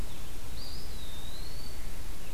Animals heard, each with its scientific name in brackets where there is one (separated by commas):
Blue-headed Vireo (Vireo solitarius), Eastern Wood-Pewee (Contopus virens)